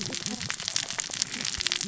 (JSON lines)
{"label": "biophony, cascading saw", "recorder": "SoundTrap 600 or HydroMoth"}